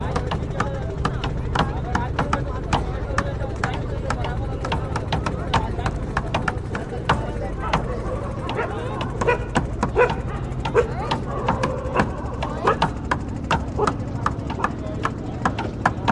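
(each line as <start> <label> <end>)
0.0 People speaking inaudibly in the background, gradually fading. 7.9
0.0 Low, monotonous noise of a tuk tuk rickshaw in the background. 16.1
7.5 Multiple dogs barking, gradually increasing in volume and then remaining steady. 14.0
13.7 Men talking in the background, inaudible and distant. 16.1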